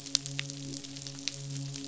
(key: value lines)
label: biophony, midshipman
recorder: SoundTrap 500